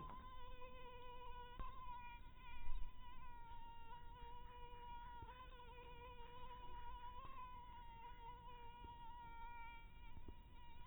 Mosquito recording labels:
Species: mosquito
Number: one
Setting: cup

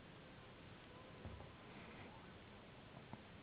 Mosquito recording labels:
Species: Anopheles gambiae s.s.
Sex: female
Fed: unfed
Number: one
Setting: insect culture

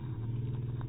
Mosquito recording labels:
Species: mosquito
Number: one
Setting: cup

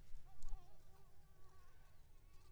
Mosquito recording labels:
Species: Anopheles coustani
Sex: female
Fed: unfed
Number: one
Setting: cup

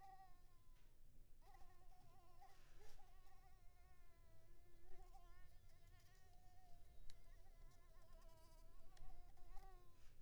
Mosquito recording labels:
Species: Anopheles maculipalpis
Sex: female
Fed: unfed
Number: one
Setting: cup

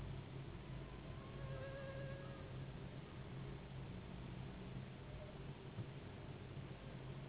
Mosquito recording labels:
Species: Anopheles gambiae s.s.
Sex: female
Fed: unfed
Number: one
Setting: insect culture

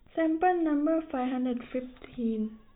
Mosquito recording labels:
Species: no mosquito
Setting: cup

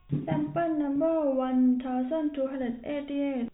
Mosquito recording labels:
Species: no mosquito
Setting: cup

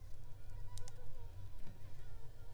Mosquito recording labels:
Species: Anopheles arabiensis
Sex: female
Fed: unfed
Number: one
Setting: cup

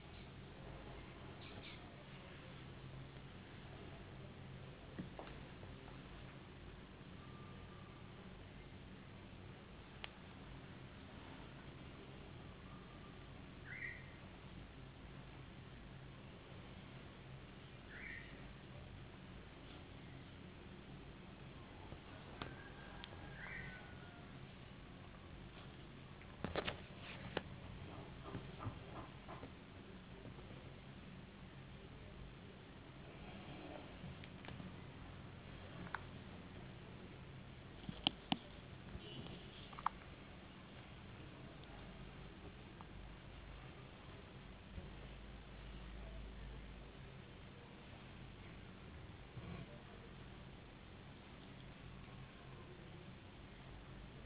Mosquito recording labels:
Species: no mosquito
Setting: insect culture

